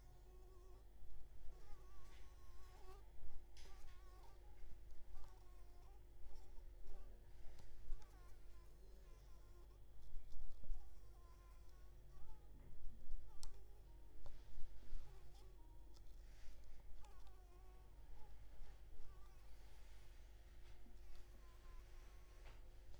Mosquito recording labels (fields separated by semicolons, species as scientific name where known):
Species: Anopheles arabiensis; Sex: female; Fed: blood-fed; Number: one; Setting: cup